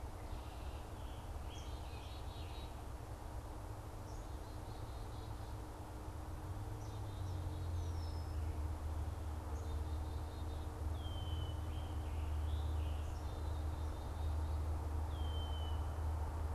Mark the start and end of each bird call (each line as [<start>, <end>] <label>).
[0.95, 2.75] Scarlet Tanager (Piranga olivacea)
[6.65, 8.35] Black-capped Chickadee (Poecile atricapillus)
[9.35, 10.85] Black-capped Chickadee (Poecile atricapillus)
[10.85, 11.65] Red-winged Blackbird (Agelaius phoeniceus)
[11.65, 13.05] Scarlet Tanager (Piranga olivacea)
[13.05, 14.75] Black-capped Chickadee (Poecile atricapillus)
[14.95, 15.95] Red-winged Blackbird (Agelaius phoeniceus)